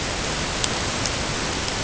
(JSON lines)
{"label": "ambient", "recorder": "HydroMoth"}